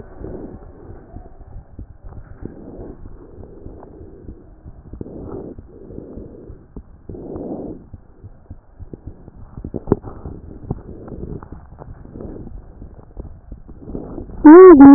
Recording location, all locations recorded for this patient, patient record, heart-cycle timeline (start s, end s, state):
aortic valve (AV)
aortic valve (AV)+pulmonary valve (PV)+tricuspid valve (TV)+mitral valve (MV)
#Age: Child
#Sex: Male
#Height: 103.0 cm
#Weight: 15.4 kg
#Pregnancy status: False
#Murmur: Absent
#Murmur locations: nan
#Most audible location: nan
#Systolic murmur timing: nan
#Systolic murmur shape: nan
#Systolic murmur grading: nan
#Systolic murmur pitch: nan
#Systolic murmur quality: nan
#Diastolic murmur timing: nan
#Diastolic murmur shape: nan
#Diastolic murmur grading: nan
#Diastolic murmur pitch: nan
#Diastolic murmur quality: nan
#Outcome: Normal
#Campaign: 2014 screening campaign
0.00	0.83	unannotated
0.83	0.88	diastole
0.88	1.00	S1
1.00	1.14	systole
1.14	1.22	S2
1.22	1.52	diastole
1.52	1.64	S1
1.64	1.78	systole
1.78	1.88	S2
1.88	2.10	diastole
2.10	2.22	S1
2.22	2.40	systole
2.40	2.50	S2
2.50	2.78	diastole
2.78	2.88	S1
2.88	3.06	systole
3.06	3.16	S2
3.16	3.38	diastole
3.38	3.48	S1
3.48	3.66	systole
3.66	3.74	S2
3.74	4.00	diastole
4.00	4.12	S1
4.12	4.28	systole
4.28	4.36	S2
4.36	4.68	diastole
4.68	4.80	S1
4.80	4.94	systole
4.94	5.02	S2
5.02	5.23	diastole
5.23	14.94	unannotated